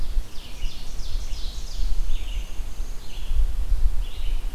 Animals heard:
Red-eyed Vireo (Vireo olivaceus), Ovenbird (Seiurus aurocapilla), Black-and-white Warbler (Mniotilta varia)

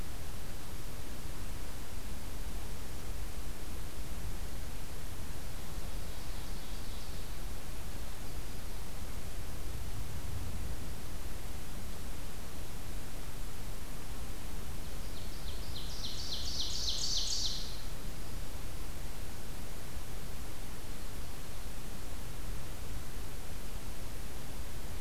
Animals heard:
Ovenbird (Seiurus aurocapilla)

